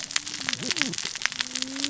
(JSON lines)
{"label": "biophony, cascading saw", "recorder": "SoundTrap 600 or HydroMoth"}